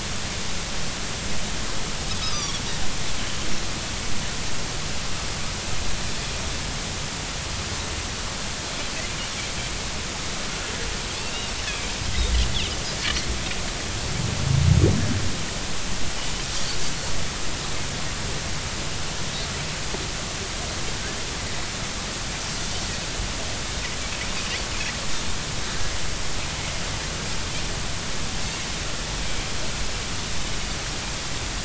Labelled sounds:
2.2	2.6	Pacific white-sided dolphin, 1.1 to 6.0 kHz
11.2	11.5	Pacific white-sided dolphin, 2.7 to 2.9 kHz

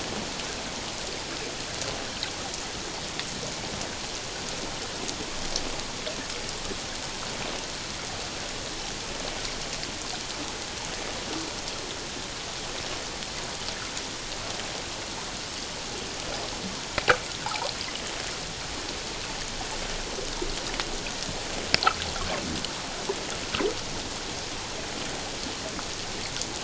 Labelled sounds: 17.4	17.7	water noise, 0.78 to 1.1 kHz

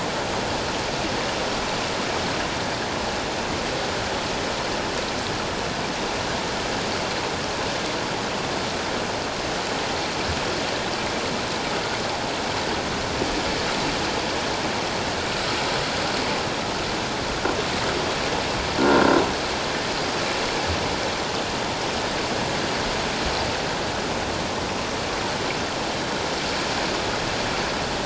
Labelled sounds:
18.8	19.1	croaking sound likely from a nearby submerged object, 1.3 to 1.5 kHz

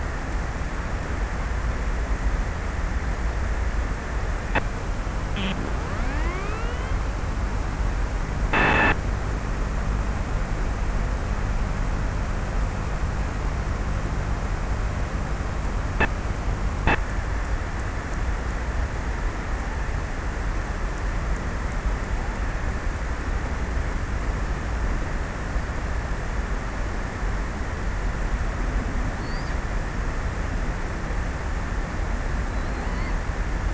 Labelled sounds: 6.1	9.5	abiotic sound, 0 to 6.1 kHz
28.9	30.5	killer whale, offshore, 3.3 to 5.5 kHz
31.9	33.5	killer whale, offshore, 0.43 to 4.9 kHz

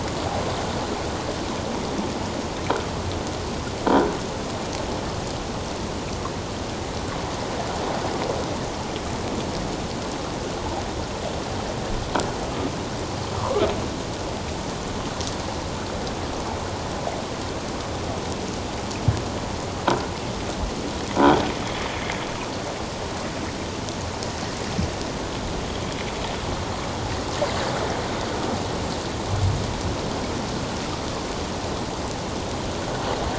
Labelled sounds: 13.4	13.7	croaking sound likely from a nearby submerged object, 0.88 to 1.4 kHz

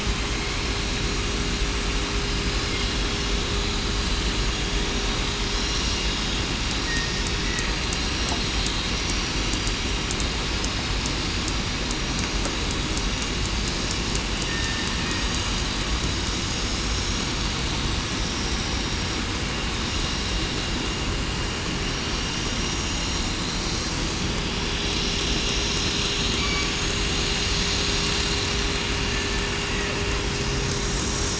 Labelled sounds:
6.8	7.2	killer whale, southern resident, 1.8 to 1.9 kHz
26.3	26.7	killer whale, southern resident, 4.5 to 4.7 kHz

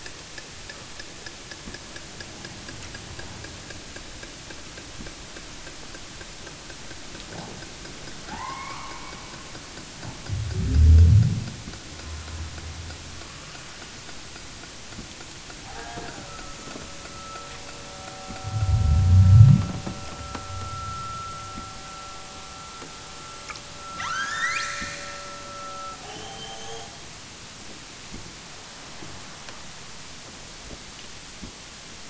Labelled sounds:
8.2	9.6	killer whale, southern Alaska resident, 0.27 to 2.7 kHz
15.6	16.4	killer whale, southern Alaska resident, 0.27 to 8.0 kHz
24.0	25.3	killer whale, southern Alaska resident, 0.82 to 8.0 kHz
26.0	27.1	killer whale, southern Alaska resident, 0.41 to 8.0 kHz

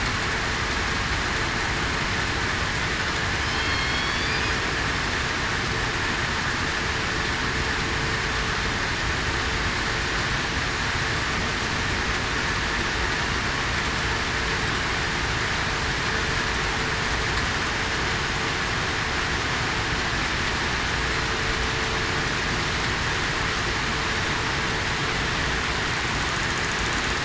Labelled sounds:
3.4	4.4	killer whale, southern resident, 3.0 to 4.9 kHz

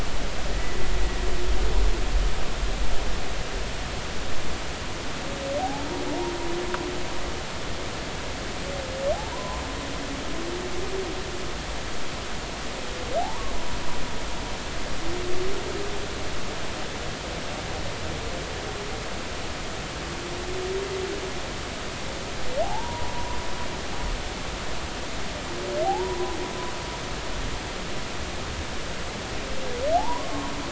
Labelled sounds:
0.5	0.8	humpback whale, 1.8 to 2.0 kHz
5.6	5.9	humpback whale, 0.80 to 0.93 kHz
9.3	9.6	humpback whale, 0.80 to 1.1 kHz
13.2	13.5	humpback whale, 0.80 to 1.2 kHz
22.6	23.4	humpback whale, 0.80 to 1.1 kHz
25.8	26.4	humpback whale, 0.80 to 1.1 kHz
29.9	30.5	humpback whale, 0.80 to 1.2 kHz

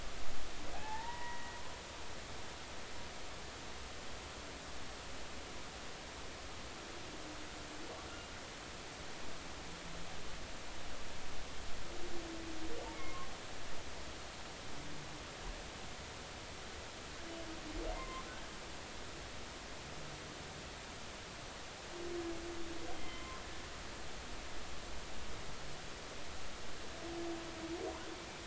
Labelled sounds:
0.7	1.6	humpback whale, 0.80 to 2.0 kHz
12.9	13.3	humpback whale, 0.99 to 2.2 kHz
17.9	18.2	humpback whale, 0.90 to 2.1 kHz
22.9	23.4	humpback whale, 0.99 to 3.3 kHz
28.1	28.4	humpback whale, 2.3 to 2.5 kHz

